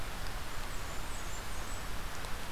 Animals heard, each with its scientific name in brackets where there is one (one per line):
Blackburnian Warbler (Setophaga fusca)